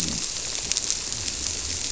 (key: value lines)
label: biophony
recorder: SoundTrap 300